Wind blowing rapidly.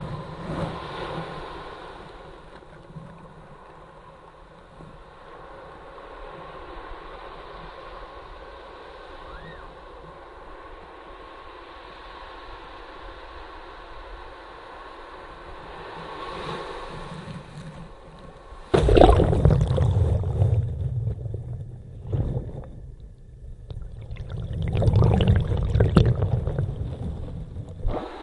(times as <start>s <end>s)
0.0s 18.6s